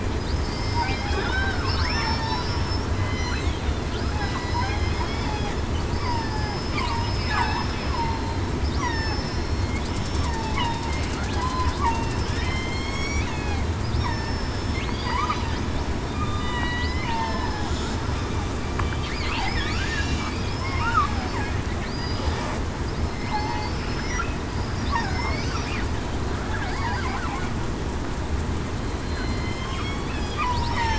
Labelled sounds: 0.5	2.8	killer whale, southern resident, 1.4 to 5.5 kHz
3.1	3.5	killer whale, southern resident, 4.1 to 4.3 kHz
4.2	4.7	killer whale, southern resident, 1.9 to 2.1 kHz
5.9	8.4	killer whale, southern resident, 1.6 to 5.3 kHz
8.8	10.3	killer whale, southern resident, 1.7 to 5.5 kHz
11.4	13.1	killer whale, southern resident, 0.94 to 3.4 kHz
14.0	14.8	killer whale, southern resident, 5.2 to 5.6 kHz
15.2	15.6	killer whale, southern resident, 4.8 to 4.9 kHz
16.1	16.6	killer whale, southern resident, 1.2 to 3.7 kHz
17.2	17.6	killer whale, southern resident, 1.6 to 5.3 kHz
19.8	20.1	killer whale, southern resident, 1.4 to 1.8 kHz
20.6	21.1	killer whale, southern resident, 1.0 to 1.5 kHz
21.9	22.4	killer whale, southern resident, 4.8 to 5.0 kHz
23.1	23.5	killer whale, southern resident, 2.0 to 2.1 kHz
26.7	27.1	killer whale, southern resident, 4.6 to 5.0 kHz
29.0	29.6	killer whale, southern resident, 4.1 to 4.2 kHz
30.4	30.8	killer whale, southern resident, 0.89 to 1.0 kHz

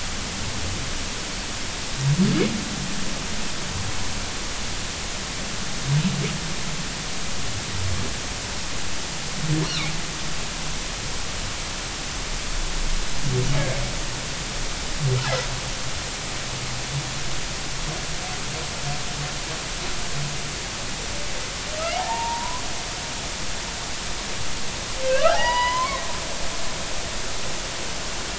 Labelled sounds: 22.0	22.6	humpback whale, 0.80 to 1.1 kHz
25.0	26.0	humpback whale, 0.80 to 5.1 kHz

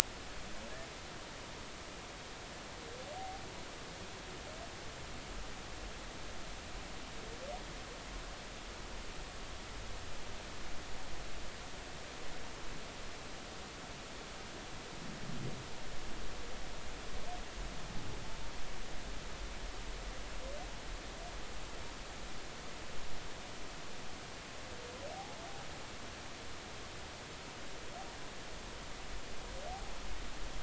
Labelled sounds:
25.1	25.4	humpback whale, 0.80 to 0.90 kHz

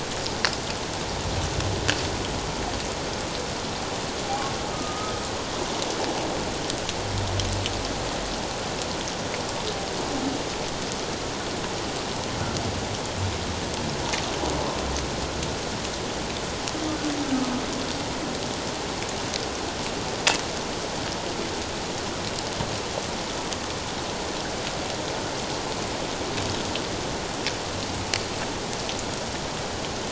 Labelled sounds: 4.7	5.1	humpback whale, 1.2 to 1.3 kHz

